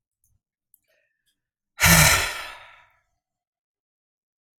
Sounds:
Sigh